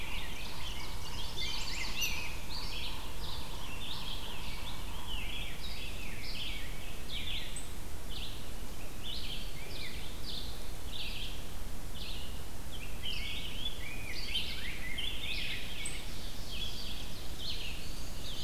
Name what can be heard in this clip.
Yellow-bellied Sapsucker, Rose-breasted Grosbeak, Red-eyed Vireo, Chestnut-sided Warbler, unidentified call, Ovenbird